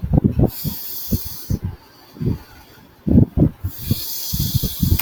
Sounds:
Sigh